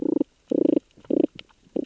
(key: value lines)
label: biophony, damselfish
recorder: SoundTrap 600 or HydroMoth